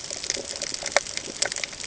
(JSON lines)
{"label": "ambient", "recorder": "HydroMoth"}